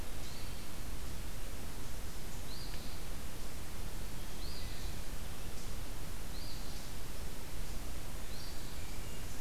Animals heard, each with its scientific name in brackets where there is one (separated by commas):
Wood Thrush (Hylocichla mustelina), Eastern Phoebe (Sayornis phoebe)